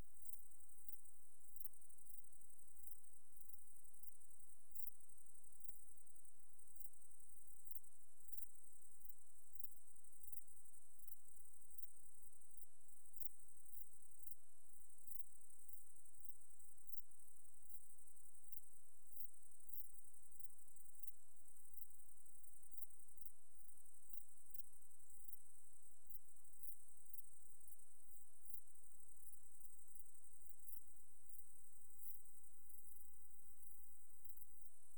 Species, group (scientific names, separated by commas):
Pholidoptera femorata, Orthoptera